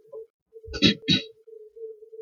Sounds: Throat clearing